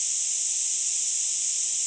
{"label": "ambient", "recorder": "HydroMoth"}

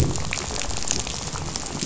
{"label": "biophony, rattle", "recorder": "SoundTrap 500"}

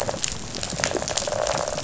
{"label": "biophony, rattle response", "recorder": "SoundTrap 500"}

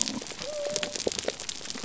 {"label": "biophony", "recorder": "SoundTrap 300"}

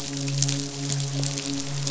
{"label": "biophony, midshipman", "recorder": "SoundTrap 500"}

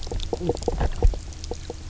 {"label": "biophony, knock croak", "recorder": "SoundTrap 300"}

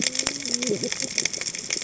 {"label": "biophony, cascading saw", "recorder": "HydroMoth"}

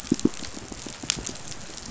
{"label": "biophony, pulse", "recorder": "SoundTrap 500"}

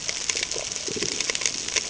{"label": "ambient", "recorder": "HydroMoth"}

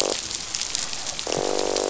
{"label": "biophony, croak", "recorder": "SoundTrap 500"}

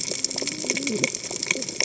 {"label": "biophony, cascading saw", "recorder": "HydroMoth"}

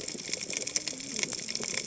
{"label": "biophony, cascading saw", "recorder": "HydroMoth"}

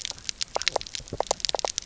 {"label": "biophony, knock croak", "recorder": "SoundTrap 300"}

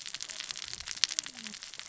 {"label": "biophony, cascading saw", "recorder": "SoundTrap 600 or HydroMoth"}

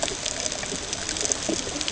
{"label": "ambient", "recorder": "HydroMoth"}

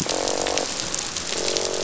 {"label": "biophony, croak", "recorder": "SoundTrap 500"}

